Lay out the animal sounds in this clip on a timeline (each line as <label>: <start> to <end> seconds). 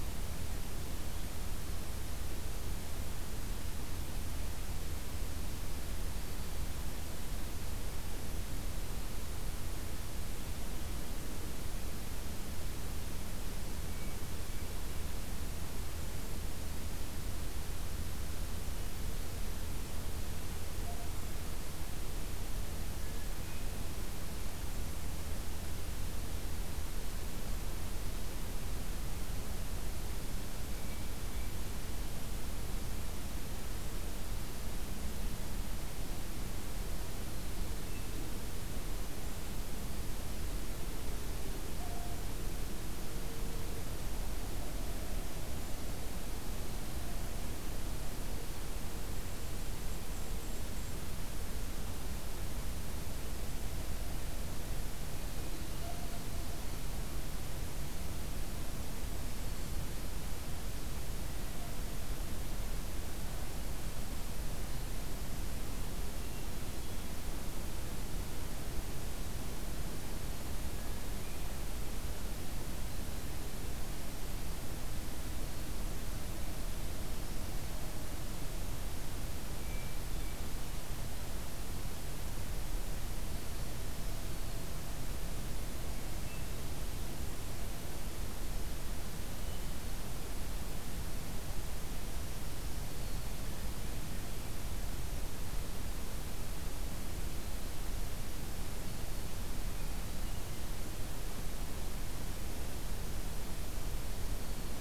Hermit Thrush (Catharus guttatus): 13.8 to 14.8 seconds
Hermit Thrush (Catharus guttatus): 30.6 to 31.6 seconds
Golden-crowned Kinglet (Regulus satrapa): 49.1 to 51.0 seconds
Hermit Thrush (Catharus guttatus): 70.7 to 71.6 seconds
Hermit Thrush (Catharus guttatus): 79.5 to 80.5 seconds
Hermit Thrush (Catharus guttatus): 89.3 to 90.3 seconds
Black-throated Green Warbler (Setophaga virens): 92.0 to 93.6 seconds
Black-throated Green Warbler (Setophaga virens): 104.2 to 104.8 seconds